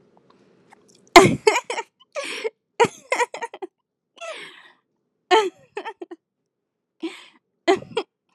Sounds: Laughter